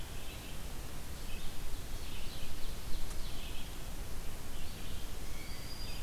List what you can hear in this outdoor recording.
Red-eyed Vireo, Ovenbird, Blue Jay